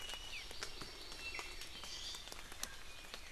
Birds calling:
Iiwi (Drepanis coccinea), Hawaii Amakihi (Chlorodrepanis virens)

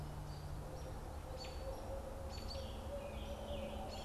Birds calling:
Hairy Woodpecker (Dryobates villosus), American Robin (Turdus migratorius), Scarlet Tanager (Piranga olivacea)

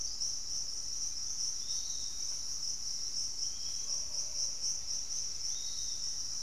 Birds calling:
Black-faced Antthrush (Formicarius analis), Pygmy Antwren (Myrmotherula brachyura), Piratic Flycatcher (Legatus leucophaius)

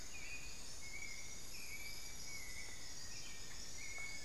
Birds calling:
Buff-throated Woodcreeper (Xiphorhynchus guttatus), Elegant Woodcreeper (Xiphorhynchus elegans), White-necked Thrush (Turdus albicollis)

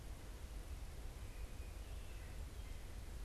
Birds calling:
White-breasted Nuthatch (Sitta carolinensis)

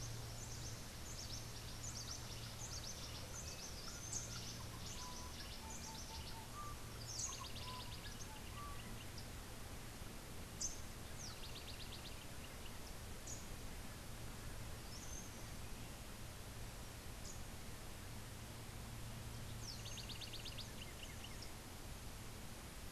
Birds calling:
Rufous-capped Warbler (Basileuterus rufifrons), Rufous-and-white Wren (Thryophilus rufalbus), House Wren (Troglodytes aedon), Cabanis's Wren (Cantorchilus modestus)

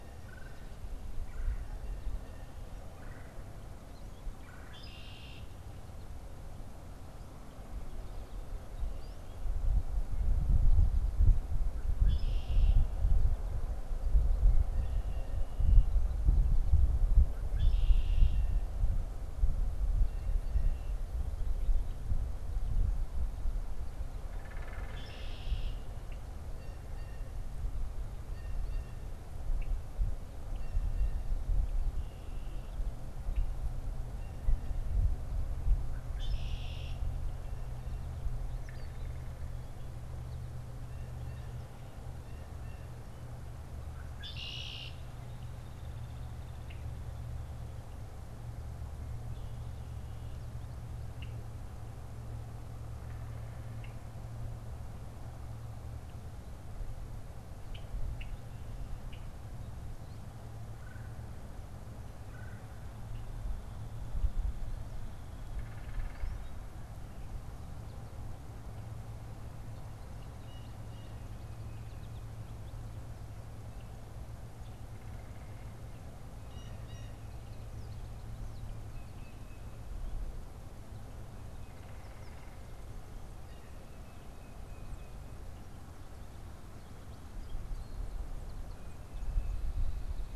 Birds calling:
Red-winged Blackbird (Agelaius phoeniceus), Blue Jay (Cyanocitta cristata), Red-bellied Woodpecker (Melanerpes carolinus), Tufted Titmouse (Baeolophus bicolor), unidentified bird, American Goldfinch (Spinus tristis)

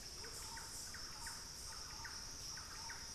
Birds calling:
Thrush-like Wren (Campylorhynchus turdinus), Amazonian Motmot (Momotus momota)

